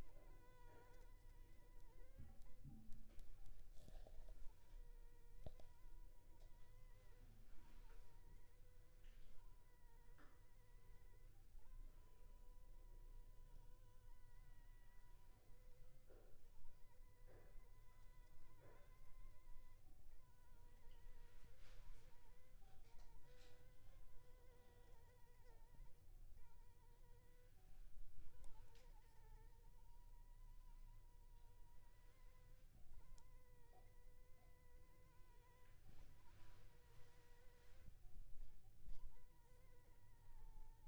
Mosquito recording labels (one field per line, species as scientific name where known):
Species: Anopheles funestus s.l.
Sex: female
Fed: unfed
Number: one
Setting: cup